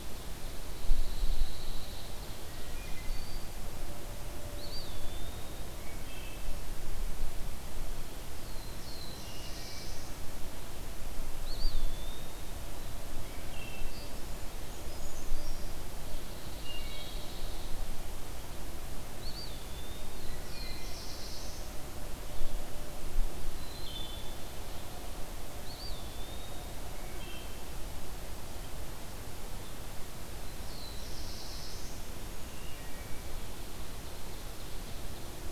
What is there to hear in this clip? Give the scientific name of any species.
Setophaga pinus, Hylocichla mustelina, Contopus virens, Setophaga caerulescens, Certhia americana, Seiurus aurocapilla